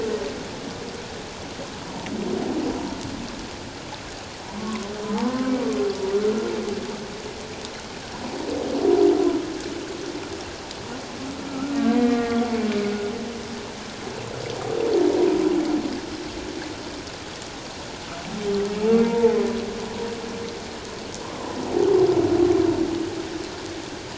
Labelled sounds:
4.6	4.9	humpback whale, 0.97 to 1.2 kHz
5.1	5.5	humpback whale, 0.81 to 1.1 kHz
11.5	12.4	humpback whale, 1.1 to 2.2 kHz
19.0	19.4	humpback whale, 0.84 to 1.0 kHz

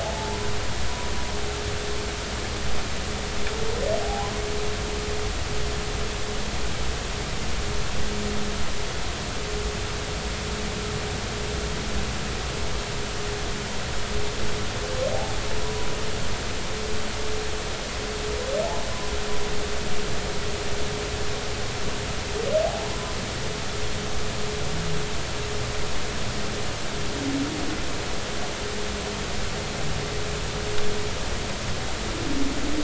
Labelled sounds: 0.0	0.5	humpback whale, 0.80 to 1.0 kHz
4.0	4.3	humpback whale, 0.80 to 1.1 kHz
15.1	15.9	humpback whale, 0.80 to 1.0 kHz
22.7	22.9	humpback whale, 0.80 to 0.99 kHz

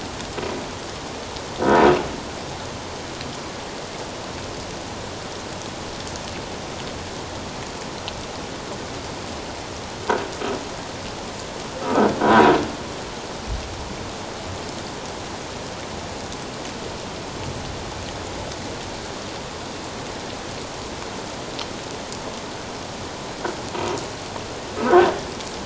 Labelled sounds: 12.2	12.5	croaking sound likely from a nearby submerged object, 0.94 to 1.0 kHz
24.8	25.1	croaking sound likely from a nearby submerged object, 1.4 to 1.7 kHz

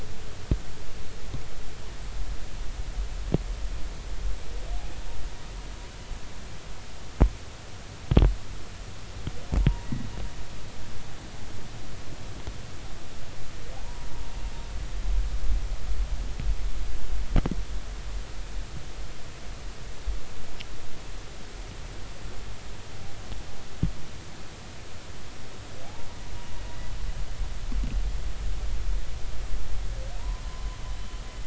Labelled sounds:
9.6	9.9	humpback whale, 0.90 to 0.99 kHz
13.8	14.1	humpback whale, 0.80 to 1.0 kHz
30.2	30.4	humpback whale, 0.90 to 1.1 kHz

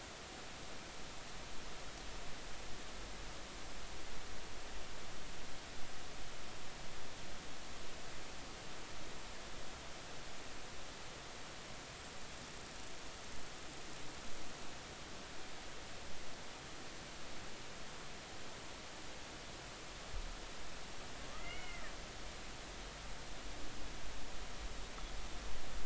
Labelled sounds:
21.4	21.9	killer whale, Bigg's (transient), 1.4 to 3.0 kHz

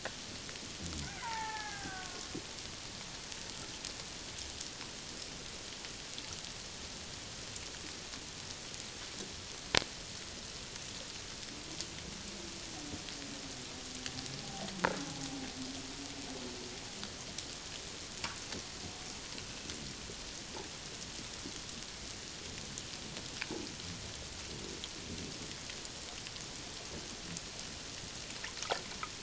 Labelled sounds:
1.2	2.3	killer whale, Bigg's (transient), 0.78 to 2.3 kHz
14.4	14.7	killer whale, Bigg's (transient), 0.78 to 0.88 kHz

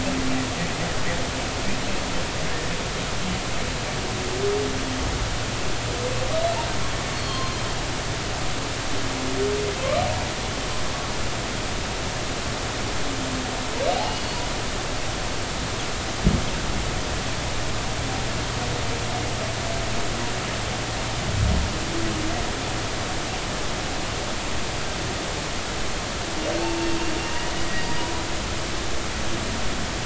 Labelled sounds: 7.1	7.6	humpback whale, 0.99 to 4.4 kHz
13.9	14.2	humpback whale, 0.80 to 0.96 kHz
27.6	28.0	humpback whale, 1.8 to 4.8 kHz

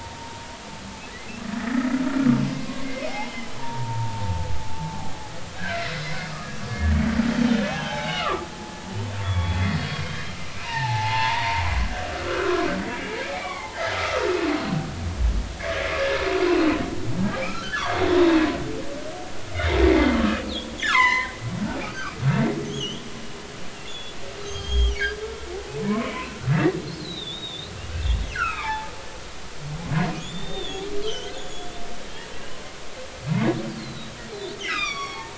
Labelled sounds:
1.5	1.9	humpback whale, 1.7 to 2.0 kHz
2.6	4.5	humpback whale, 0.80 to 2.3 kHz
5.6	5.9	humpback whale, 1.3 to 1.8 kHz
6.3	7.0	humpback whale, 1.1 to 1.9 kHz
7.7	8.5	humpback whale, 0.80 to 3.9 kHz
9.2	10.4	humpback whale, 1.0 to 3.6 kHz
10.6	11.6	humpback whale, 0.80 to 2.9 kHz
12.2	14.3	humpback whale, 0.80 to 2.4 kHz
16.0	16.2	humpback whale, 1.6 to 1.8 kHz
17.4	18.1	humpback whale, 0.90 to 3.7 kHz
19.5	19.8	humpback whale, 2.0 to 3.8 kHz
20.8	21.3	humpback whale, 0.80 to 6.3 kHz
21.9	23.0	humpback whale, 1.1 to 6.8 kHz
23.9	26.4	humpback whale, 0.80 to 6.6 kHz
27.0	28.9	humpback whale, 0.80 to 4.4 kHz
30.2	31.7	humpback whale, 2.9 to 7.2 kHz
32.3	32.6	humpback whale, 2.7 to 3.0 kHz
33.8	35.3	humpback whale, 0.80 to 5.9 kHz

